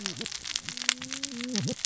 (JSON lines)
{"label": "biophony, cascading saw", "recorder": "SoundTrap 600 or HydroMoth"}